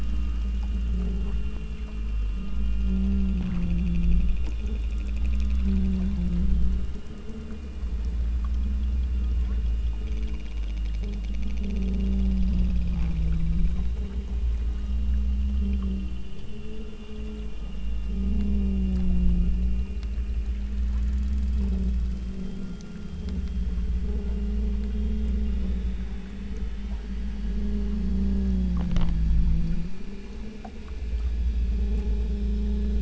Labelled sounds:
9.3	9.7	killer whale, southern Alaska resident, 0.75 to 2.4 kHz

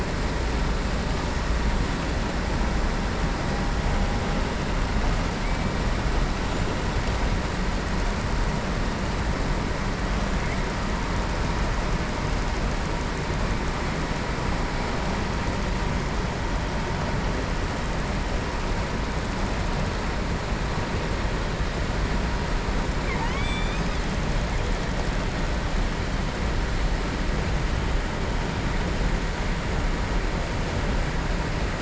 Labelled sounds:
22.9	24.0	killer whale, southern resident, 0.89 to 8.0 kHz

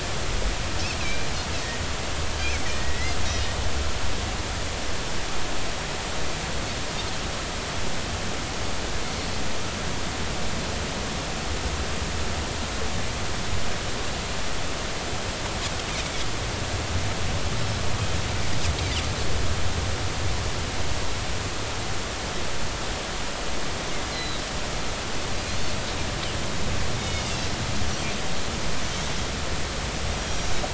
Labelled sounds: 1.0	1.3	Pacific white-sided dolphin, 2.2 to 2.7 kHz
2.7	3.5	Pacific white-sided dolphin, 1.8 to 4.0 kHz
24.1	24.4	Pacific white-sided dolphin, 3.7 to 4.3 kHz
27.0	27.5	Pacific white-sided dolphin, 2.1 to 5.0 kHz
30.1	30.5	Pacific white-sided dolphin, 5.6 to 6.1 kHz

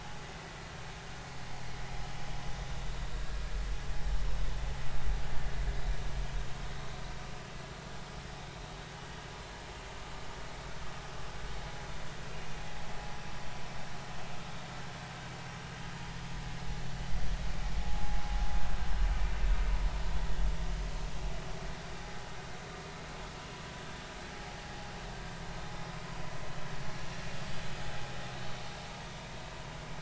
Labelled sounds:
3.1	3.4	vessel noise, 1.6 to 1.7 kHz
17.8	18.2	vessel noise, 0.80 to 0.90 kHz

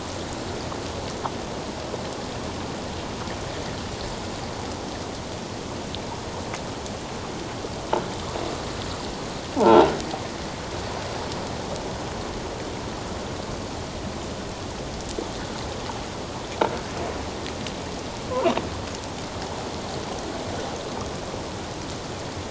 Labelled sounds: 9.6	9.9	croaking sound likely from a nearby submerged object, 0.78 to 1.1 kHz

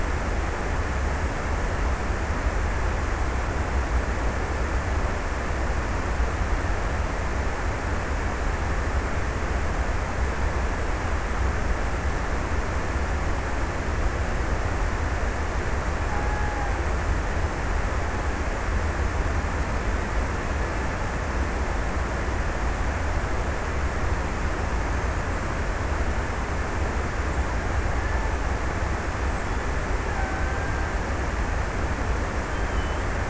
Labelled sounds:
29.8	31.3	killer whale, Bigg's (transient), 0.61 to 1.8 kHz

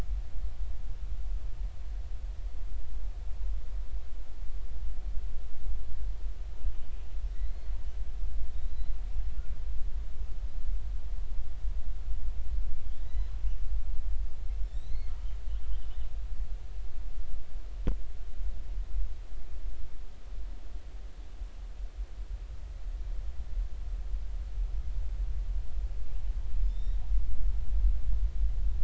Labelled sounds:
7.5	7.7	killer whale, 4.1 to 4.3 kHz
8.5	8.9	killer whale, 3.6 to 4.2 kHz
13.0	13.3	killer whale, 1.9 to 4.1 kHz
14.7	15.1	killer whale, 3.5 to 4.4 kHz
26.7	27.0	killer whale, 3.4 to 5.7 kHz

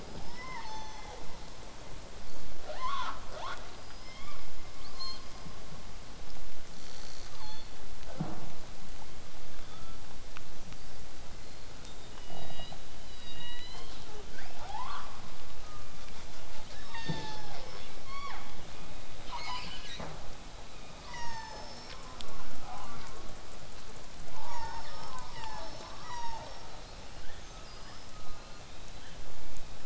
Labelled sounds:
0.0	1.3	killer whale, southern resident, 0.31 to 6.3 kHz
2.6	3.2	killer whale, southern resident, 0.36 to 6.7 kHz
6.7	7.8	killer whale, southern resident, call S37ii, 0.54 to 8.0 kHz
9.5	10.0	killer whale, southern resident, 1.1 to 3.7 kHz
10.6	11.0	killer whale, southern resident, whistle, 4.4 to 6.2 kHz
11.4	12.1	killer whale, southern resident, whistle, 3.5 to 8.0 kHz
13.0	14.1	killer whale, southern resident, call S16, 0.85 to 5.3 kHz
13.7	15.2	killer whale, southern resident, 0.22 to 5.6 kHz
15.6	16.2	killer whale, southern resident, call S16, 0.99 to 2.6 kHz
16.1	18.9	killer whale, southern resident, 0.31 to 5.8 kHz
16.7	17.8	killer whale, southern resident, call S36, 0.36 to 8.0 kHz
21.1	22.0	killer whale, southern resident, call S36, 0.40 to 7.7 kHz
22.0	23.2	killer whale, southern resident, J pod, call S04, 0.31 to 1.6 kHz
24.3	26.0	killer whale, southern resident, 0.40 to 7.4 kHz
26.0	26.8	killer whale, southern resident, call S36, 0.36 to 8.0 kHz
26.6	27.0	killer whale, southern resident, whistle, 3.8 to 8.0 kHz
27.4	28.6	killer whale, southern resident, whistle, 3.9 to 8.0 kHz
28.1	28.6	killer whale, southern resident, J pod, call S04, 0.22 to 1.8 kHz

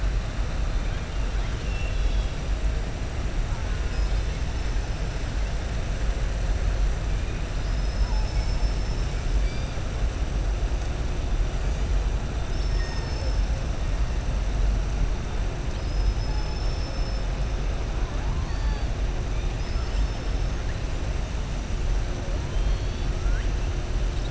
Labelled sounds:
1.3	2.4	killer whale, southern resident, 2.7 to 5.6 kHz
7.5	9.1	killer whale, southern resident, 4.2 to 6.2 kHz
12.4	13.4	killer whale, southern resident, 3.7 to 6.5 kHz

